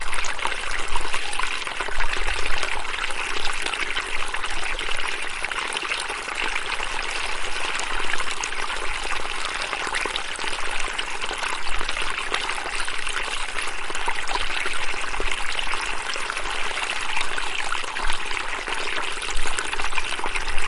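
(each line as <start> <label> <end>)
0.0 Water flowing downstream outdoors. 20.7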